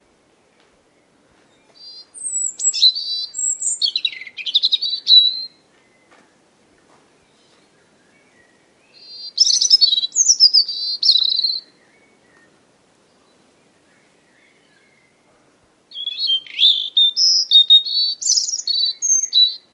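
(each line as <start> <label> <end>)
0.0 Birds singing softly in the background. 19.6
2.1 Birds singing a happy, rhythmic melody in nature. 5.7
8.9 A bird sings a happy, rhythmic melody with a metallic tone in nature. 11.9
15.8 A bird sings a happy, rhythmic melody with a metallic tone in nature. 19.7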